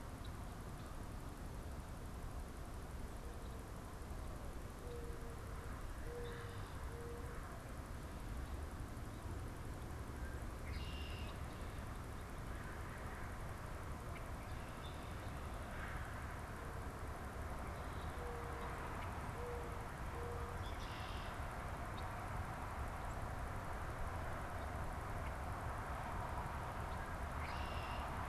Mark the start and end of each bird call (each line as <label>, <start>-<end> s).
Mourning Dove (Zenaida macroura), 4.7-7.7 s
Red-winged Blackbird (Agelaius phoeniceus), 9.9-11.6 s
Red-winged Blackbird (Agelaius phoeniceus), 14.4-15.4 s
Mourning Dove (Zenaida macroura), 18.0-20.7 s
Red-winged Blackbird (Agelaius phoeniceus), 20.5-21.7 s
Red-winged Blackbird (Agelaius phoeniceus), 26.8-28.3 s